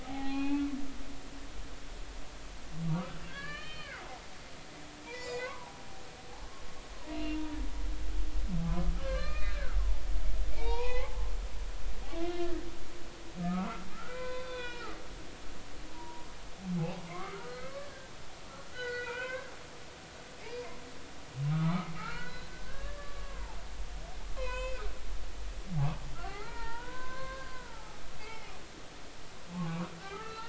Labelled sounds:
0.0	0.7	humpback whale, 0.80 to 4.2 kHz
2.9	4.1	humpback whale, 1.1 to 4.4 kHz
5.1	5.9	humpback whale, 0.80 to 6.0 kHz
7.0	7.4	humpback whale, 0.90 to 2.9 kHz
9.0	9.8	humpback whale, 1.0 to 4.3 kHz
10.5	11.3	humpback whale, 0.80 to 4.2 kHz
12.2	12.5	humpback whale, 2.0 to 2.1 kHz
13.4	15.0	humpback whale, 0.96 to 4.1 kHz
15.5	16.3	humpback whale, 0.90 to 1.1 kHz
17.1	17.8	humpback whale, 0.99 to 2.3 kHz
18.5	19.5	humpback whale, 0.86 to 5.0 kHz
20.4	24.9	humpback whale, 0.80 to 6.8 kHz
26.2	28.5	humpback whale, 0.80 to 4.8 kHz
29.5	30.4	humpback whale, 0.80 to 4.7 kHz

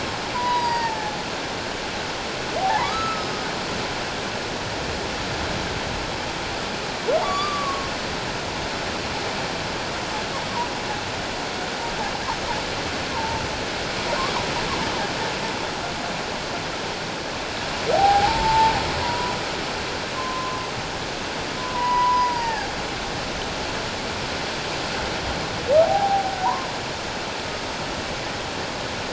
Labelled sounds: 2.6	3.5	humpback whale, 0.78 to 5.2 kHz
7.2	7.9	humpback whale, 1.0 to 4.8 kHz
13.1	13.4	humpback whale, 0.84 to 1.1 kHz
17.9	19.3	humpback whale, 0.78 to 1.0 kHz
20.2	20.6	humpback whale, 0.97 to 1.2 kHz
21.6	22.7	humpback whale, 0.78 to 5.0 kHz
25.8	26.3	humpback whale, 0.78 to 0.94 kHz

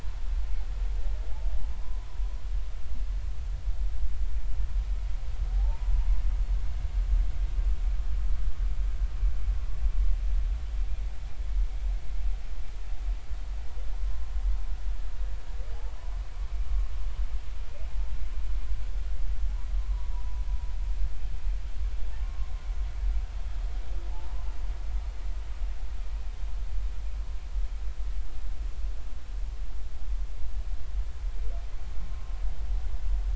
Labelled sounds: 5.5	5.9	humpback whale, 0.80 to 1.0 kHz
16.7	16.9	humpback whale, 1.06 to 1.12 kHz
20.1	20.4	humpback whale, 0.90 to 1.1 kHz
22.2	22.5	humpback whale, 1.0 to 1.1 kHz
24.1	24.5	humpback whale, 0.80 to 1.1 kHz

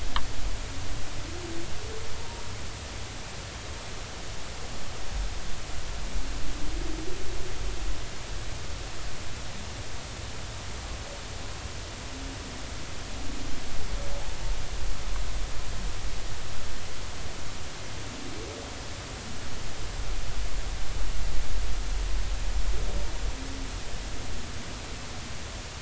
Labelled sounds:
2.2	2.4	humpback whale, 0.86 to 0.99 kHz

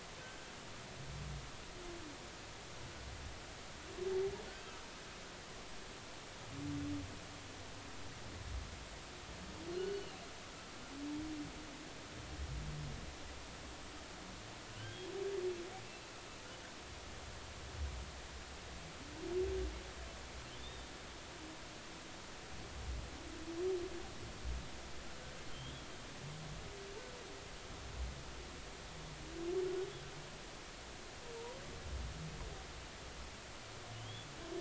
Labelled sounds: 0.2	0.5	humpback whale, 1.5 to 1.6 kHz
4.5	4.8	humpback whale, 1.4 to 1.6 kHz
9.7	10.1	humpback whale, 1.4 to 1.5 kHz
14.7	15.1	humpback whale, 1.5 to 3.4 kHz
20.6	20.8	humpback whale, 3.4 to 3.8 kHz

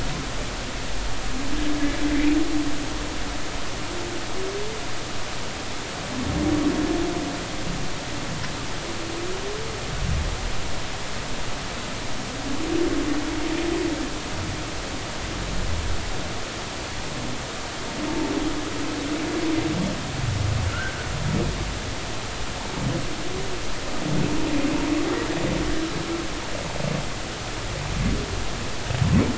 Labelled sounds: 2.0	2.3	humpback whale, 2.0 to 2.1 kHz
20.7	21.0	humpback whale, 1.3 to 1.7 kHz

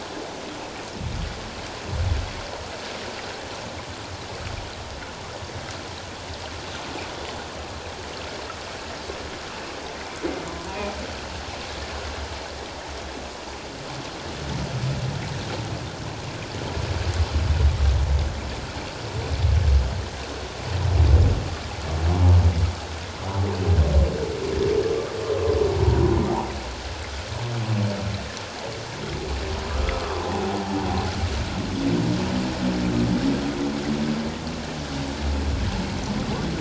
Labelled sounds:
10.7	10.9	humpback whale, 2.4 to 2.5 kHz
30.1	30.4	humpback whale, 0.78 to 1.1 kHz

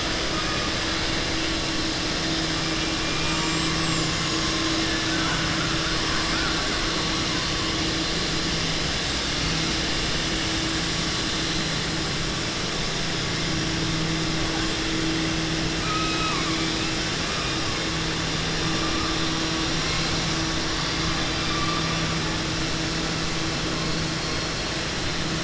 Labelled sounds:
4.9	5.4	killer whale, southern resident, 0.84 to 2.6 kHz
15.7	16.6	killer whale, southern resident, 0.95 to 3.9 kHz

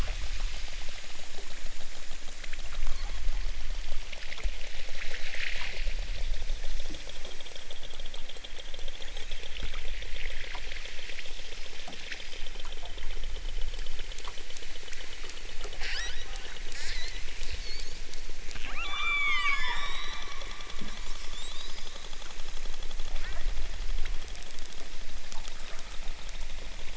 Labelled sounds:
8.9	9.5	killer whale, southern Alaska resident, 1.8 to 4.3 kHz
15.7	16.4	killer whale, southern Alaska resident, 1.2 to 8.0 kHz
16.7	18.1	killer whale, southern Alaska resident, 1.1 to 8.0 kHz
18.8	20.4	killer whale, southern Alaska resident, 0.60 to 8.0 kHz
21.2	22.0	killer whale, southern Alaska resident, 1.9 to 8.0 kHz
23.1	23.5	killer whale, southern Alaska resident, 1.0 to 2.5 kHz

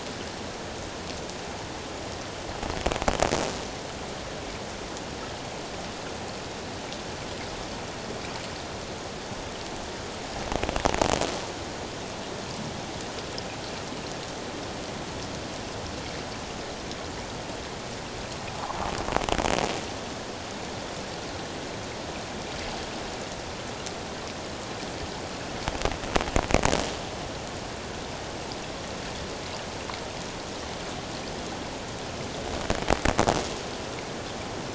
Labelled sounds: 18.5	18.9	croaking sound likely from a nearby submerged object, 0.78 to 1.2 kHz

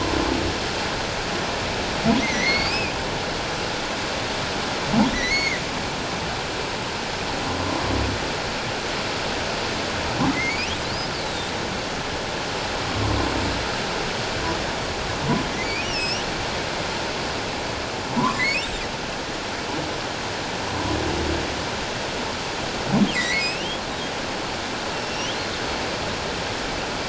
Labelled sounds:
2.2	2.9	humpback whale, 1.9 to 6.4 kHz
5.1	5.6	humpback whale, 1.8 to 2.3 kHz
10.3	10.7	humpback whale, 1.9 to 3.0 kHz
15.5	16.3	humpback whale, 1.9 to 8.0 kHz
18.2	18.7	humpback whale, 0.91 to 2.3 kHz
23.1	23.8	humpback whale, 1.8 to 5.9 kHz
25.0	25.4	humpback whale, 2.7 to 5.8 kHz

